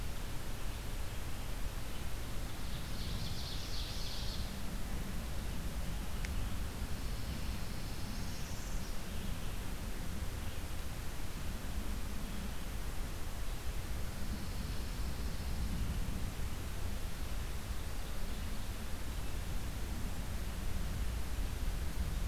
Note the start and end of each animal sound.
2.2s-4.8s: Ovenbird (Seiurus aurocapilla)
6.7s-8.5s: Pine Warbler (Setophaga pinus)
7.8s-9.1s: Northern Parula (Setophaga americana)
14.0s-15.9s: Pine Warbler (Setophaga pinus)

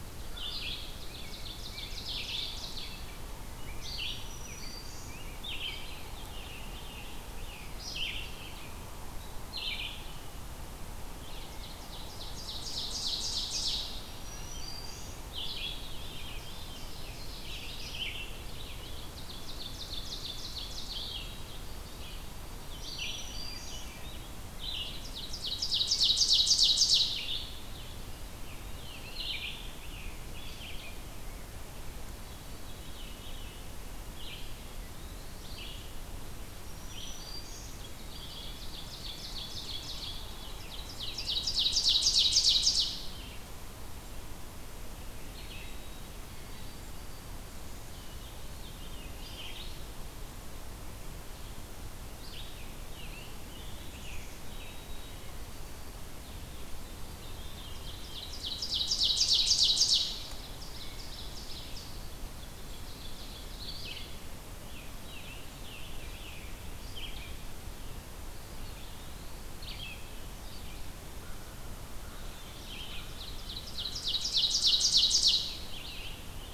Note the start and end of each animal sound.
0.0s-29.6s: Red-eyed Vireo (Vireo olivaceus)
0.6s-5.7s: Rose-breasted Grosbeak (Pheucticus ludovicianus)
0.7s-3.0s: Ovenbird (Seiurus aurocapilla)
3.9s-5.2s: Black-throated Green Warbler (Setophaga virens)
5.7s-7.6s: Ovenbird (Seiurus aurocapilla)
11.4s-14.2s: Ovenbird (Seiurus aurocapilla)
14.0s-15.4s: Black-throated Green Warbler (Setophaga virens)
15.6s-17.2s: Veery (Catharus fuscescens)
16.2s-17.8s: Ovenbird (Seiurus aurocapilla)
18.5s-21.3s: Ovenbird (Seiurus aurocapilla)
21.1s-23.4s: White-throated Sparrow (Zonotrichia albicollis)
22.7s-24.0s: Black-throated Green Warbler (Setophaga virens)
23.2s-24.1s: Veery (Catharus fuscescens)
24.5s-27.4s: Ovenbird (Seiurus aurocapilla)
28.4s-30.8s: Scarlet Tanager (Piranga olivacea)
30.3s-76.5s: Red-eyed Vireo (Vireo olivaceus)
31.9s-33.6s: Veery (Catharus fuscescens)
34.3s-35.5s: Eastern Wood-Pewee (Contopus virens)
36.6s-38.0s: Black-throated Green Warbler (Setophaga virens)
38.3s-43.1s: Ovenbird (Seiurus aurocapilla)
45.5s-47.7s: White-throated Sparrow (Zonotrichia albicollis)
48.1s-49.5s: Veery (Catharus fuscescens)
52.4s-55.1s: Scarlet Tanager (Piranga olivacea)
54.4s-56.3s: White-throated Sparrow (Zonotrichia albicollis)
57.6s-64.1s: Ovenbird (Seiurus aurocapilla)
64.5s-66.7s: Scarlet Tanager (Piranga olivacea)
68.2s-69.6s: Eastern Wood-Pewee (Contopus virens)
72.0s-73.1s: Veery (Catharus fuscescens)
72.8s-75.8s: Ovenbird (Seiurus aurocapilla)
75.6s-76.5s: Scarlet Tanager (Piranga olivacea)

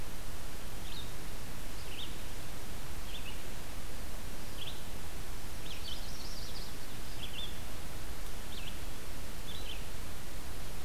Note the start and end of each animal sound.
0.0s-10.8s: Red-eyed Vireo (Vireo olivaceus)
5.7s-7.1s: Chestnut-sided Warbler (Setophaga pensylvanica)

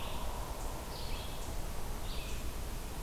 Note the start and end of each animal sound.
0.0s-3.0s: Red-eyed Vireo (Vireo olivaceus)

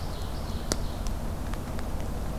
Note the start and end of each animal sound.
0.0s-1.1s: Ovenbird (Seiurus aurocapilla)

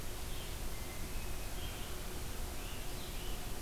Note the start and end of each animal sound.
0.0s-3.6s: Red-eyed Vireo (Vireo olivaceus)
0.6s-1.7s: Hermit Thrush (Catharus guttatus)

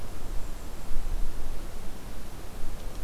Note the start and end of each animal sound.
0.2s-1.0s: Golden-crowned Kinglet (Regulus satrapa)

